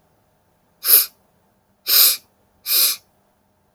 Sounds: Sniff